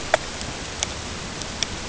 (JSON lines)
{"label": "ambient", "recorder": "HydroMoth"}